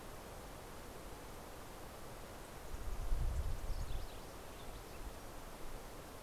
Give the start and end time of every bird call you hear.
[0.94, 6.14] House Wren (Troglodytes aedon)

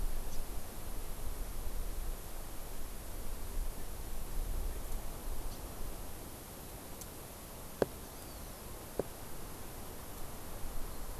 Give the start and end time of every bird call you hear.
[0.29, 0.39] Hawaii Amakihi (Chlorodrepanis virens)
[5.49, 5.59] Hawaii Amakihi (Chlorodrepanis virens)
[8.19, 8.69] Hawaii Amakihi (Chlorodrepanis virens)

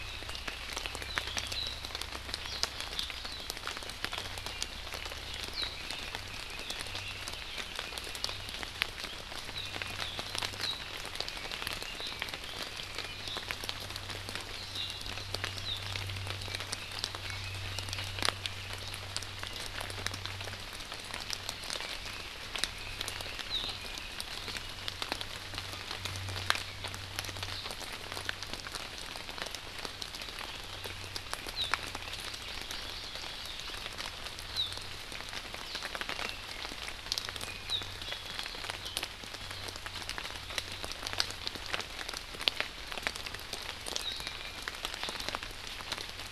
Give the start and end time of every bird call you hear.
[0.00, 1.60] Red-billed Leiothrix (Leiothrix lutea)
[2.50, 2.60] Warbling White-eye (Zosterops japonicus)
[5.50, 5.70] Warbling White-eye (Zosterops japonicus)
[5.60, 8.20] Red-billed Leiothrix (Leiothrix lutea)
[9.60, 10.00] Iiwi (Drepanis coccinea)
[10.00, 10.10] Warbling White-eye (Zosterops japonicus)
[10.60, 10.80] Warbling White-eye (Zosterops japonicus)
[11.30, 13.70] Red-billed Leiothrix (Leiothrix lutea)
[12.00, 12.20] Omao (Myadestes obscurus)
[13.10, 13.50] Omao (Myadestes obscurus)
[14.50, 15.00] Omao (Myadestes obscurus)
[17.20, 18.80] Red-billed Leiothrix (Leiothrix lutea)
[21.80, 24.20] Red-billed Leiothrix (Leiothrix lutea)
[23.50, 23.60] Warbling White-eye (Zosterops japonicus)
[32.30, 33.60] Hawaii Amakihi (Chlorodrepanis virens)
[44.20, 44.70] Iiwi (Drepanis coccinea)

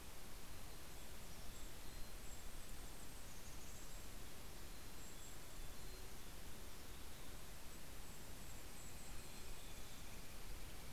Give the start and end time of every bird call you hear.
[0.00, 2.50] Mountain Chickadee (Poecile gambeli)
[0.90, 5.40] Golden-crowned Kinglet (Regulus satrapa)
[4.40, 7.70] Mountain Chickadee (Poecile gambeli)
[7.00, 10.70] Golden-crowned Kinglet (Regulus satrapa)
[8.20, 10.40] Mountain Chickadee (Poecile gambeli)

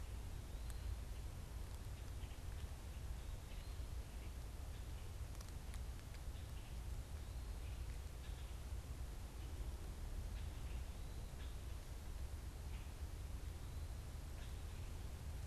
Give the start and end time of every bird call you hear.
[0.14, 15.44] unidentified bird

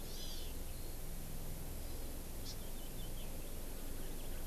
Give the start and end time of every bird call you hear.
[0.00, 0.60] Hawaii Amakihi (Chlorodrepanis virens)
[2.40, 2.50] Hawaii Amakihi (Chlorodrepanis virens)

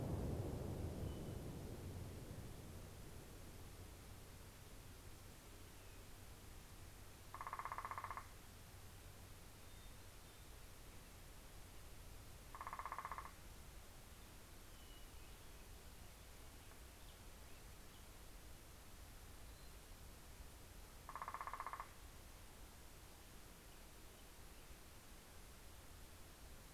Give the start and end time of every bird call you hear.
[0.43, 2.23] Hermit Thrush (Catharus guttatus)
[6.43, 10.93] Northern Flicker (Colaptes auratus)
[12.33, 13.93] Northern Flicker (Colaptes auratus)
[20.93, 22.53] Northern Flicker (Colaptes auratus)

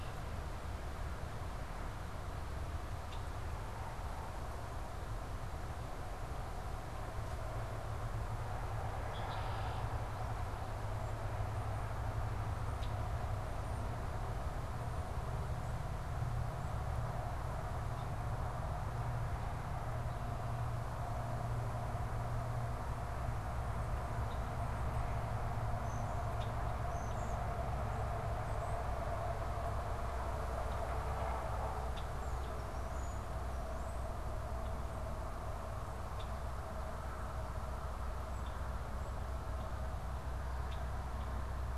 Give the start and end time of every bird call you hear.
[0.00, 13.05] Red-winged Blackbird (Agelaius phoeniceus)
[24.15, 41.77] Red-winged Blackbird (Agelaius phoeniceus)
[25.65, 27.65] European Starling (Sturnus vulgaris)
[32.15, 34.15] European Starling (Sturnus vulgaris)

